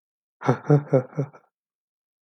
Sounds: Laughter